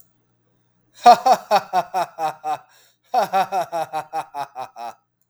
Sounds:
Laughter